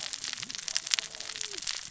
{"label": "biophony, cascading saw", "recorder": "SoundTrap 600 or HydroMoth"}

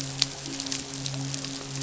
{"label": "biophony, midshipman", "recorder": "SoundTrap 500"}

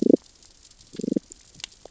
{"label": "biophony, damselfish", "recorder": "SoundTrap 600 or HydroMoth"}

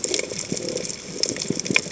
{"label": "biophony", "recorder": "HydroMoth"}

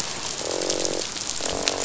{"label": "biophony, croak", "recorder": "SoundTrap 500"}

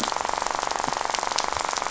{"label": "biophony, rattle", "recorder": "SoundTrap 500"}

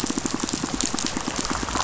{"label": "biophony, pulse", "recorder": "SoundTrap 500"}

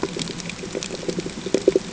{"label": "ambient", "recorder": "HydroMoth"}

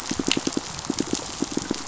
{"label": "biophony, pulse", "recorder": "SoundTrap 500"}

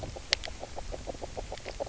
{"label": "biophony, knock croak", "recorder": "SoundTrap 300"}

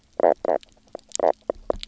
{"label": "biophony, knock croak", "recorder": "SoundTrap 300"}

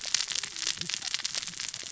{"label": "biophony, cascading saw", "recorder": "SoundTrap 600 or HydroMoth"}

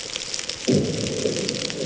{"label": "anthrophony, bomb", "recorder": "HydroMoth"}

